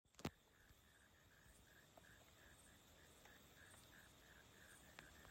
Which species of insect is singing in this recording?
Neocurtilla hexadactyla